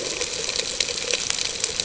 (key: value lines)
label: ambient
recorder: HydroMoth